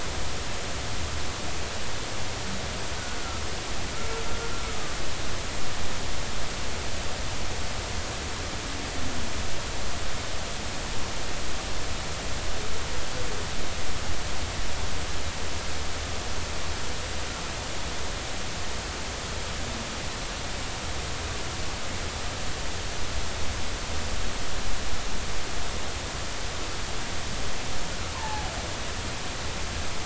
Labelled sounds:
28.1	28.5	humpback whale, 0.80 to 1.8 kHz

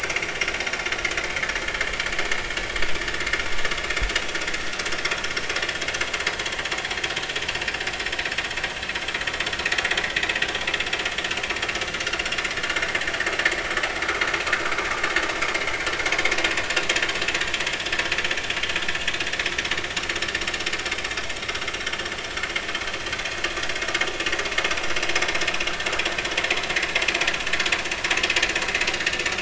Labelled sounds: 10.0	10.3	vessel noise, 1.9 to 2.0 kHz
20.3	20.6	vessel noise, 5.4 to 5.6 kHz

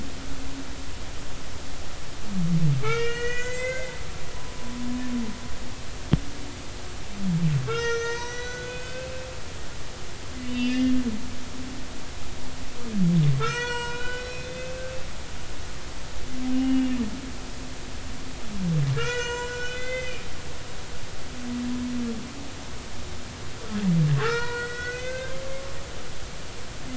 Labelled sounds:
2.8	4.0	humpback whale, 1.2 to 7.1 kHz
7.7	9.3	humpback whale, 0.90 to 6.4 kHz
10.4	11.0	humpback whale, 1.7 to 4.9 kHz
13.4	14.9	humpback whale, 0.90 to 6.4 kHz
16.5	17.0	humpback whale, 2.7 to 2.9 kHz
18.9	20.2	humpback whale, 0.90 to 7.4 kHz
24.2	25.4	humpback whale, 0.90 to 7.7 kHz

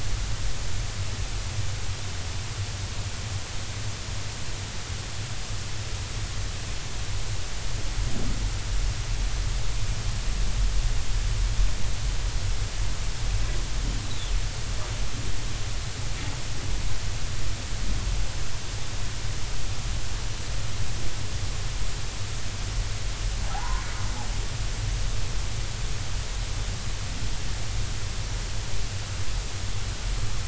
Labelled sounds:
23.5	23.8	humpback whale, 0.80 to 1.1 kHz

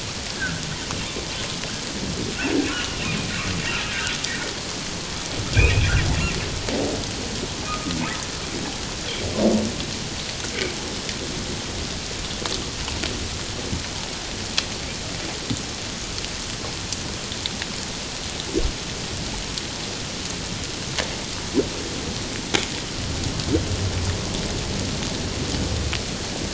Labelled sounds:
0.4	0.6	humpback whale, 1.3 to 1.7 kHz
2.7	3.0	humpback whale, 2.7 to 3.0 kHz
3.8	4.2	humpback whale, 1.4 to 1.7 kHz
5.6	5.9	humpback whale, 2.2 to 2.8 kHz
7.6	8.0	humpback whale, 1.1 to 1.4 kHz

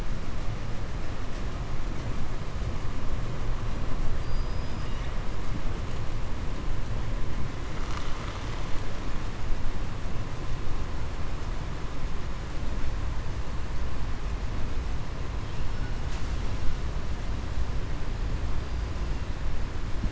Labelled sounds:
4.1	5.1	killer whale, southern resident, 1.9 to 5.1 kHz

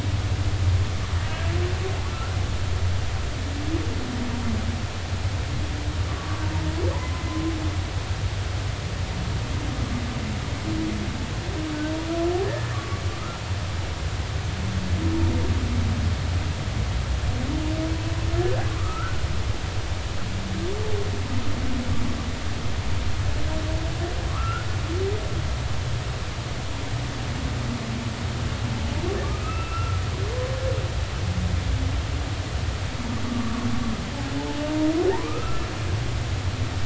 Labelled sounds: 2.1	2.3	humpback whale, 1.3 to 1.5 kHz
6.1	6.4	humpback whale, 1.1 to 1.2 kHz
12.4	13.0	humpback whale, 1.1 to 1.9 kHz
18.7	19.2	humpback whale, 0.99 to 1.6 kHz
24.3	24.7	humpback whale, 1.1 to 1.5 kHz
29.2	30.0	humpback whale, 1.1 to 2.8 kHz
33.3	33.7	humpback whale, 1.0 to 1.2 kHz
35.1	35.6	humpback whale, 0.80 to 1.4 kHz

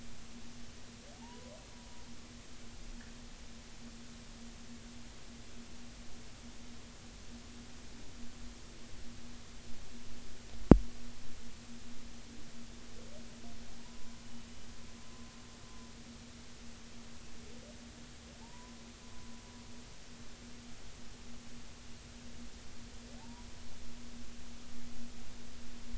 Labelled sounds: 1.2	1.6	humpback whale, 0.80 to 1.1 kHz
13.8	14.2	humpback whale, 0.86 to 1.1 kHz
15.0	15.3	humpback whale, 0.99 to 1.1 kHz
18.4	18.7	humpback whale, 0.80 to 1.1 kHz
23.2	23.5	humpback whale, 0.80 to 1.0 kHz

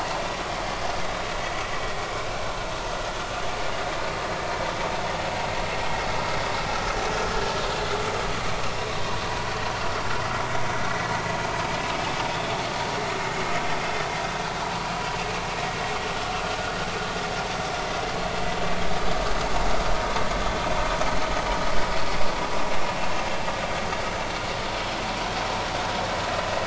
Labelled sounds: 12.3	12.6	vessel noise, 3.3 to 3.6 kHz

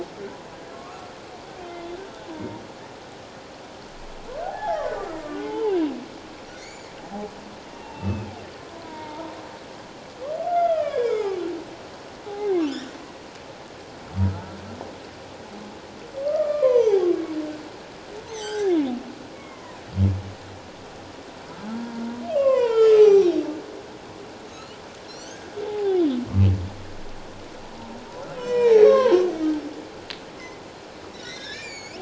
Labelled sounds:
0.7	1.0	humpback whale, 1.0 to 1.4 kHz
2.3	2.6	humpback whale, 0.91 to 1.0 kHz
4.4	5.8	humpback whale, 0.78 to 3.2 kHz
6.5	6.9	humpback whale, 2.0 to 7.2 kHz
7.7	9.3	humpback whale, 0.84 to 2.8 kHz
10.5	11.4	humpback whale, 0.94 to 3.7 kHz
12.3	12.9	humpback whale, 0.78 to 3.8 kHz
16.2	17.1	humpback whale, 0.78 to 1.4 kHz
18.3	18.8	humpback whale, 0.78 to 6.5 kHz
19.3	19.8	humpback whale, 0.94 to 2.3 kHz
21.6	23.4	humpback whale, 0.78 to 6.2 kHz
24.5	26.0	humpback whale, 0.78 to 7.3 kHz
28.4	29.3	humpback whale, 0.81 to 8.0 kHz
30.4	30.6	humpback whale, 2.0 to 2.2 kHz
31.1	32.0	humpback whale, 1.5 to 7.3 kHz

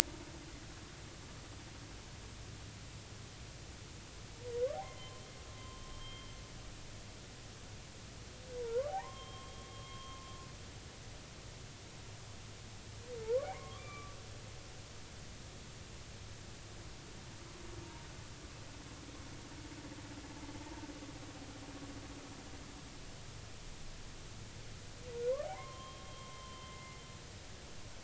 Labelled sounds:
4.7	6.3	humpback whale, 0.80 to 3.3 kHz
8.6	10.2	humpback whale, 0.80 to 3.3 kHz
13.2	14.2	humpback whale, 0.83 to 3.6 kHz
25.5	27.0	humpback whale, 0.90 to 3.2 kHz

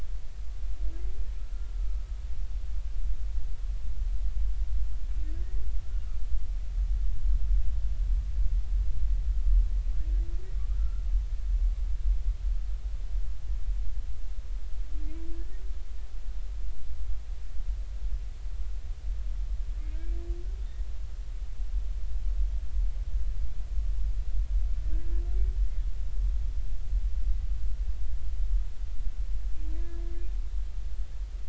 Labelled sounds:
1.4	2.0	humpback whale, 1.2 to 1.4 kHz
10.8	11.0	humpback whale, 1.3 to 1.5 kHz
24.9	25.2	humpback whale, 1.5 to 1.8 kHz

